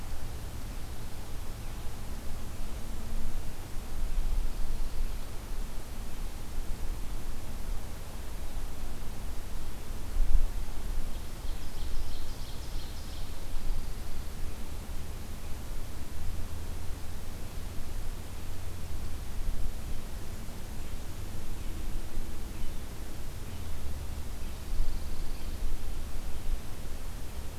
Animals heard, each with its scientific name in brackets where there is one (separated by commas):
Ovenbird (Seiurus aurocapilla), Pine Warbler (Setophaga pinus)